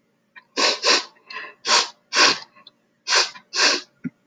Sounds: Sniff